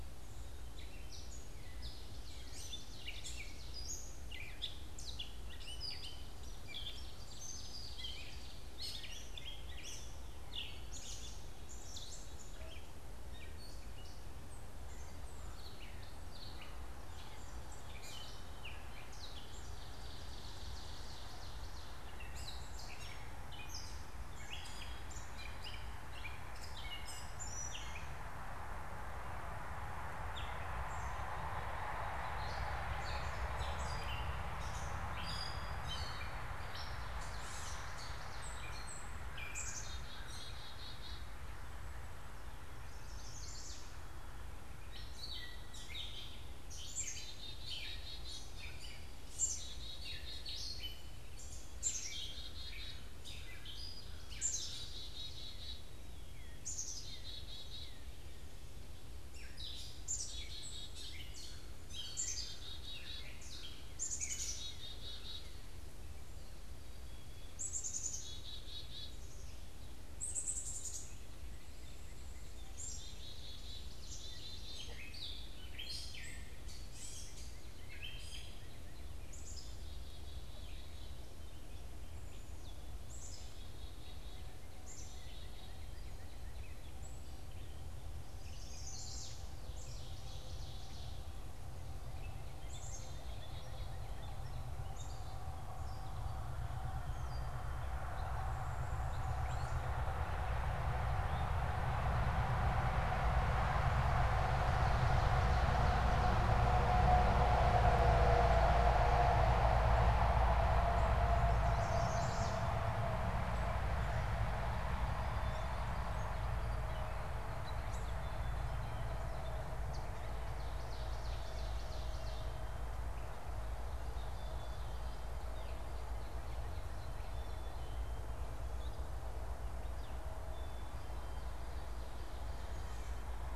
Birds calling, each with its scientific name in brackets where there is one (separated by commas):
Black-capped Chickadee (Poecile atricapillus), Gray Catbird (Dumetella carolinensis), Chestnut-sided Warbler (Setophaga pensylvanica), Northern Cardinal (Cardinalis cardinalis), Ovenbird (Seiurus aurocapilla)